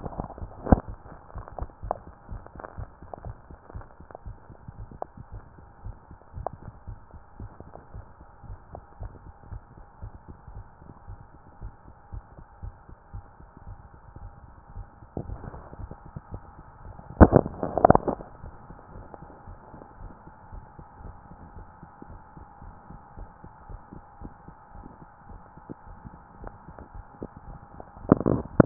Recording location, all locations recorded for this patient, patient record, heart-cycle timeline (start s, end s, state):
tricuspid valve (TV)
aortic valve (AV)+pulmonary valve (PV)+tricuspid valve (TV)+mitral valve (MV)
#Age: nan
#Sex: Female
#Height: nan
#Weight: nan
#Pregnancy status: True
#Murmur: Present
#Murmur locations: pulmonary valve (PV)+tricuspid valve (TV)
#Most audible location: pulmonary valve (PV)
#Systolic murmur timing: Holosystolic
#Systolic murmur shape: Plateau
#Systolic murmur grading: I/VI
#Systolic murmur pitch: Low
#Systolic murmur quality: Harsh
#Diastolic murmur timing: nan
#Diastolic murmur shape: nan
#Diastolic murmur grading: nan
#Diastolic murmur pitch: nan
#Diastolic murmur quality: nan
#Outcome: Normal
#Campaign: 2015 screening campaign
0.00	18.40	unannotated
18.40	18.54	S1
18.54	18.68	systole
18.68	18.78	S2
18.78	18.94	diastole
18.94	19.08	S1
19.08	19.22	systole
19.22	19.30	S2
19.30	19.48	diastole
19.48	19.58	S1
19.58	19.74	systole
19.74	19.82	S2
19.82	20.00	diastole
20.00	20.14	S1
20.14	20.26	systole
20.26	20.32	S2
20.32	20.52	diastole
20.52	20.66	S1
20.66	20.78	systole
20.78	20.86	S2
20.86	21.02	diastole
21.02	21.16	S1
21.16	21.30	systole
21.30	21.38	S2
21.38	21.54	diastole
21.54	21.68	S1
21.68	21.80	systole
21.80	21.88	S2
21.88	22.08	diastole
22.08	22.20	S1
22.20	22.38	systole
22.38	22.48	S2
22.48	22.62	diastole
22.62	22.74	S1
22.74	22.90	systole
22.90	23.00	S2
23.00	23.18	diastole
23.18	23.30	S1
23.30	23.44	systole
23.44	23.52	S2
23.52	23.68	diastole
23.68	23.80	S1
23.80	23.92	systole
23.92	24.02	S2
24.02	24.20	diastole
24.20	24.32	S1
24.32	24.48	systole
24.48	24.58	S2
24.58	24.76	diastole
24.76	24.88	S1
24.88	24.99	systole
24.99	25.08	S2
25.08	25.28	diastole
25.28	25.42	S1
25.42	25.58	systole
25.58	25.70	S2
25.70	25.88	diastole
25.88	25.97	S1
25.97	26.04	systole
26.04	26.14	S2
26.14	26.40	diastole
26.40	26.54	S1
26.54	26.68	systole
26.68	26.78	S2
26.78	26.94	diastole
26.94	27.06	S1
27.06	27.20	systole
27.20	27.30	S2
27.30	27.46	diastole
27.46	27.58	S1
27.58	28.66	unannotated